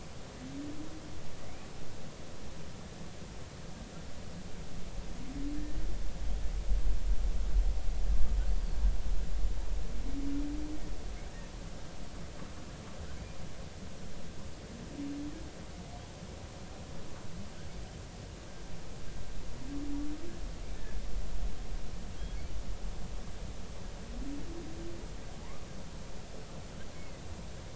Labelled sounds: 1.4	1.7	humpback whale, 1.9 to 2.6 kHz
25.4	25.7	humpback whale, 0.83 to 1.3 kHz
26.9	27.2	humpback whale, 1.9 to 2.3 kHz

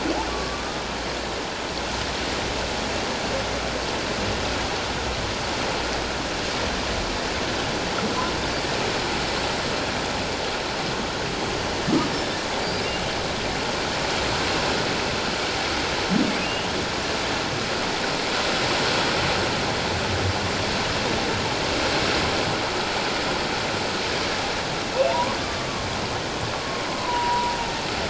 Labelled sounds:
0.3	0.8	humpback whale, 1.1 to 1.3 kHz
12.6	12.8	humpback whale, 4.6 to 5.0 kHz
16.4	16.7	humpback whale, 2.7 to 2.9 kHz
25.1	25.4	humpback whale, 0.88 to 1.2 kHz
26.5	27.6	humpback whale, 0.91 to 1.2 kHz

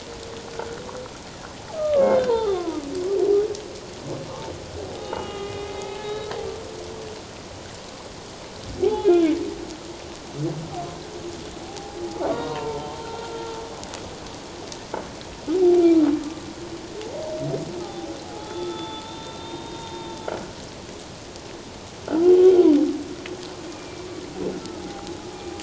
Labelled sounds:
1.7	2.8	humpback whale, 0.78 to 4.2 kHz
5.0	6.3	humpback whale, 0.81 to 3.9 kHz
8.8	9.4	humpback whale, 0.78 to 3.5 kHz
11.7	13.4	humpback whale, 0.78 to 3.8 kHz
17.8	20.2	humpback whale, 0.78 to 3.8 kHz
22.1	22.3	humpback whale, 1.2 to 1.6 kHz
23.7	24.1	humpback whale, 2.3 to 2.5 kHz
24.8	25.2	humpback whale, 0.78 to 0.88 kHz

